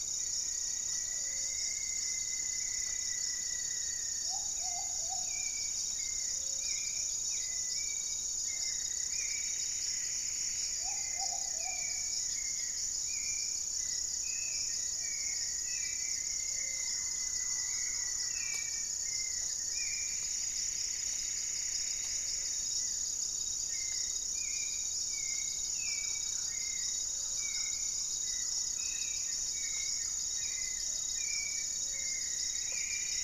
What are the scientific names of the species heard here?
unidentified bird, Leptotila rufaxilla, Patagioenas plumbea, Formicarius rufifrons, Turdus hauxwelli, Myrmelastes hyperythrus, Akletos goeldii, Campylorhynchus turdinus